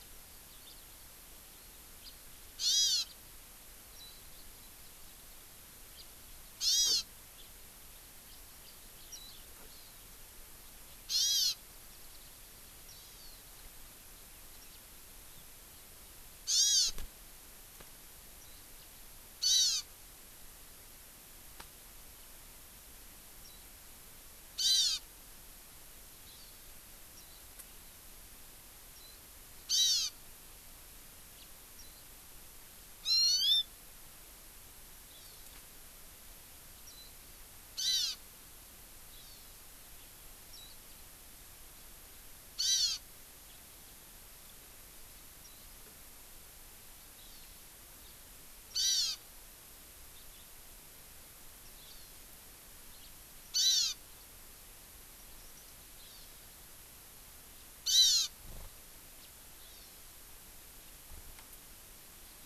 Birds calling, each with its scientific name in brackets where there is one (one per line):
House Finch (Haemorhous mexicanus)
Eurasian Skylark (Alauda arvensis)
Hawaii Amakihi (Chlorodrepanis virens)
Warbling White-eye (Zosterops japonicus)